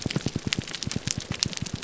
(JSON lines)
{"label": "biophony, grouper groan", "recorder": "SoundTrap 300"}